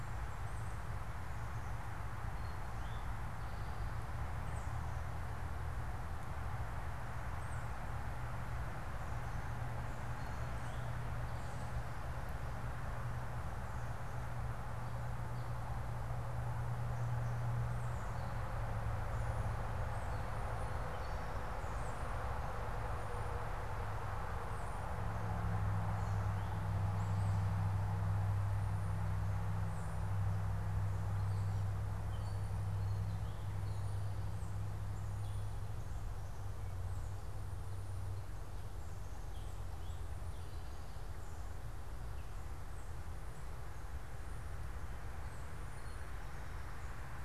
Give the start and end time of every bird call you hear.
[0.00, 7.90] unidentified bird
[2.20, 4.00] Eastern Towhee (Pipilo erythrophthalmus)
[10.10, 11.70] Eastern Towhee (Pipilo erythrophthalmus)

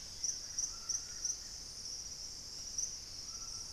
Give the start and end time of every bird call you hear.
[0.00, 3.72] Dusky-capped Greenlet (Pachysylvia hypoxantha)
[0.00, 3.72] White-throated Toucan (Ramphastos tucanus)
[0.08, 1.78] Buff-throated Woodcreeper (Xiphorhynchus guttatus)

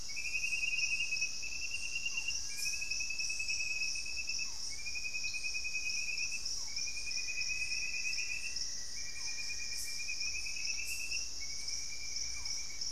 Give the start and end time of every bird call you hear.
[0.00, 12.91] Barred Forest-Falcon (Micrastur ruficollis)
[6.99, 10.49] Black-faced Antthrush (Formicarius analis)
[12.19, 12.91] Gray Antbird (Cercomacra cinerascens)

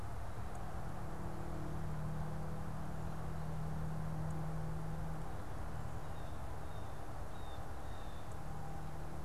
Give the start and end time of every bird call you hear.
[5.40, 8.40] Blue Jay (Cyanocitta cristata)

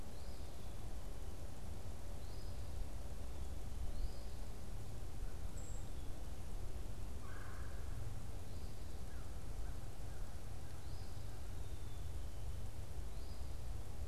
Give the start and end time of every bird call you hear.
[0.00, 4.40] Eastern Phoebe (Sayornis phoebe)
[5.40, 5.90] unidentified bird
[7.10, 8.20] Red-bellied Woodpecker (Melanerpes carolinus)
[8.90, 11.20] American Crow (Corvus brachyrhynchos)
[10.50, 11.30] Eastern Phoebe (Sayornis phoebe)
[11.50, 12.20] Black-capped Chickadee (Poecile atricapillus)

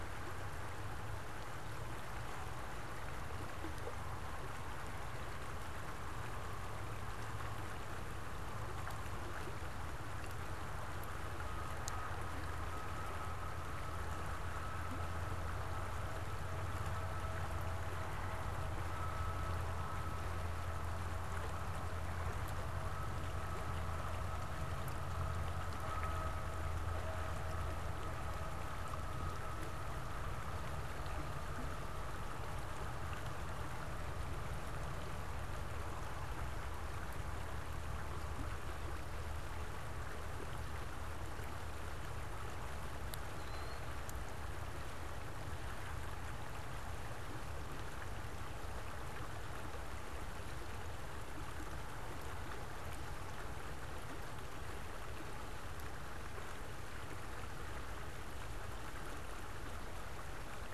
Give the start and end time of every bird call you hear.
[43.28, 43.88] Killdeer (Charadrius vociferus)

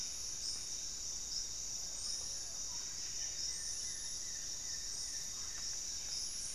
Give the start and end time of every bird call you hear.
[0.00, 5.25] Amazonian Trogon (Trogon ramonianus)
[0.00, 6.54] Buff-breasted Wren (Cantorchilus leucotis)
[0.00, 6.54] Mealy Parrot (Amazona farinosa)
[0.00, 6.54] Paradise Tanager (Tangara chilensis)
[2.65, 5.85] Goeldi's Antbird (Akletos goeldii)

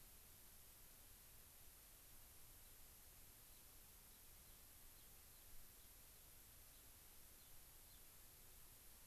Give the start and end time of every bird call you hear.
[3.50, 3.60] Gray-crowned Rosy-Finch (Leucosticte tephrocotis)
[4.10, 4.60] Gray-crowned Rosy-Finch (Leucosticte tephrocotis)
[4.90, 5.90] Gray-crowned Rosy-Finch (Leucosticte tephrocotis)
[6.70, 6.80] Gray-crowned Rosy-Finch (Leucosticte tephrocotis)
[7.30, 7.50] Gray-crowned Rosy-Finch (Leucosticte tephrocotis)
[7.80, 8.00] Gray-crowned Rosy-Finch (Leucosticte tephrocotis)

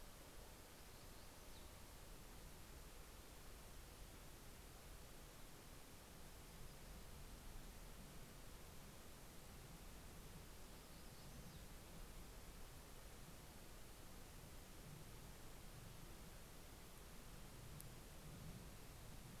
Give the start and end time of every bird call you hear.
[0.00, 2.30] Yellow-rumped Warbler (Setophaga coronata)
[9.80, 12.50] Yellow-rumped Warbler (Setophaga coronata)

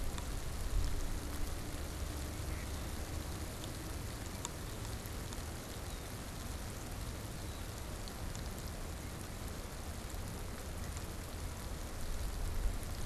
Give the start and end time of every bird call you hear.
[2.30, 2.90] Mallard (Anas platyrhynchos)
[5.60, 7.80] Red-winged Blackbird (Agelaius phoeniceus)

